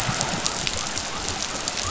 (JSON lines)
{"label": "biophony", "recorder": "SoundTrap 500"}